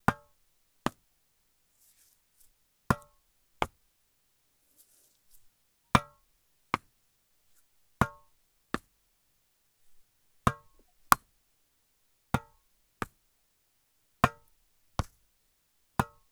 Is it a racket sport?
yes